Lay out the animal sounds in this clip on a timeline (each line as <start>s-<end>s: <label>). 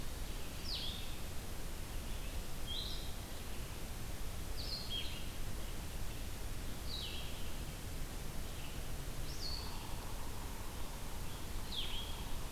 0.0s-12.5s: Blue-headed Vireo (Vireo solitarius)
9.4s-12.5s: Yellow-bellied Sapsucker (Sphyrapicus varius)